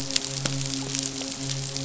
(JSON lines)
{"label": "biophony, midshipman", "recorder": "SoundTrap 500"}